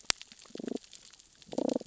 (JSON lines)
{"label": "biophony, damselfish", "recorder": "SoundTrap 600 or HydroMoth"}